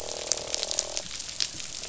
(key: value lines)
label: biophony, croak
recorder: SoundTrap 500